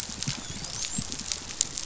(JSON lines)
{"label": "biophony, dolphin", "recorder": "SoundTrap 500"}